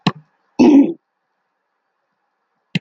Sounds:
Throat clearing